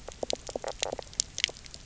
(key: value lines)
label: biophony, knock croak
recorder: SoundTrap 300